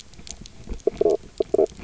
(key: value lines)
label: biophony, knock croak
recorder: SoundTrap 300